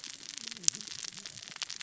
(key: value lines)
label: biophony, cascading saw
recorder: SoundTrap 600 or HydroMoth